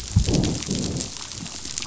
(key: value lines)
label: biophony, growl
recorder: SoundTrap 500